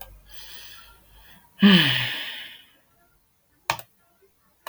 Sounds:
Sigh